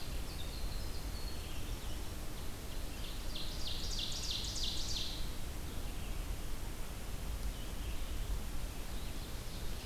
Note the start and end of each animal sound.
0.0s-1.9s: Winter Wren (Troglodytes hiemalis)
0.0s-6.8s: Red-eyed Vireo (Vireo olivaceus)
2.6s-5.5s: Ovenbird (Seiurus aurocapilla)
7.3s-9.9s: Red-eyed Vireo (Vireo olivaceus)
8.8s-9.9s: Ovenbird (Seiurus aurocapilla)

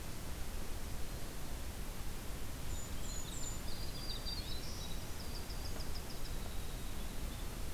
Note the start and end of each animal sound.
2.5s-3.7s: Golden-crowned Kinglet (Regulus satrapa)
2.7s-7.6s: Winter Wren (Troglodytes hiemalis)
3.6s-4.9s: Black-throated Green Warbler (Setophaga virens)

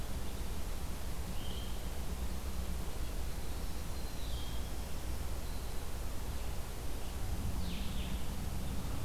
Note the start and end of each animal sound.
0.0s-1.8s: Blue-headed Vireo (Vireo solitarius)
3.9s-9.0s: Blue-headed Vireo (Vireo solitarius)

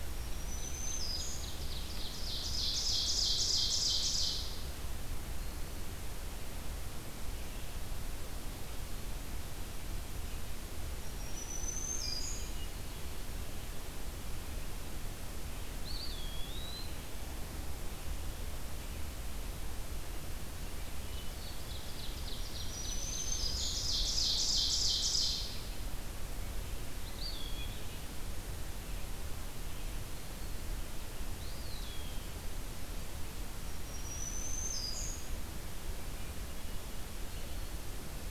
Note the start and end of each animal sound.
0.0s-1.6s: Black-throated Green Warbler (Setophaga virens)
0.5s-4.9s: Ovenbird (Seiurus aurocapilla)
10.9s-12.7s: Black-throated Green Warbler (Setophaga virens)
15.6s-17.2s: Eastern Wood-Pewee (Contopus virens)
21.0s-22.2s: Hermit Thrush (Catharus guttatus)
21.0s-25.6s: Ovenbird (Seiurus aurocapilla)
22.5s-24.1s: Black-throated Green Warbler (Setophaga virens)
26.7s-28.0s: Eastern Wood-Pewee (Contopus virens)
31.3s-32.5s: Eastern Wood-Pewee (Contopus virens)
33.5s-35.5s: Black-throated Green Warbler (Setophaga virens)

